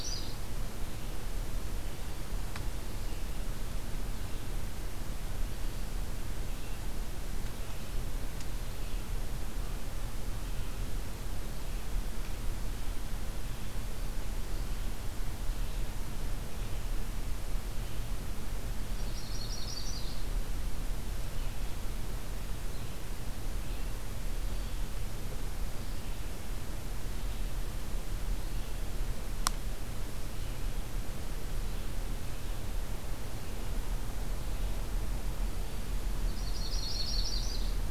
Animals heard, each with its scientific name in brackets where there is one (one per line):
Yellow-rumped Warbler (Setophaga coronata)
Red-eyed Vireo (Vireo olivaceus)